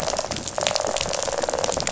{"label": "biophony, rattle response", "recorder": "SoundTrap 500"}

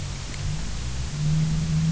{"label": "anthrophony, boat engine", "recorder": "SoundTrap 300"}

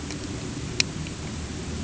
{"label": "anthrophony, boat engine", "recorder": "HydroMoth"}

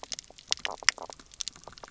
{"label": "biophony, knock croak", "recorder": "SoundTrap 300"}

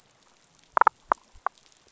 {"label": "biophony, damselfish", "recorder": "SoundTrap 500"}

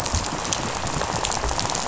{"label": "biophony, rattle", "recorder": "SoundTrap 500"}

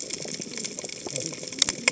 {"label": "biophony, cascading saw", "recorder": "HydroMoth"}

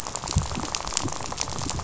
{"label": "biophony, rattle", "recorder": "SoundTrap 500"}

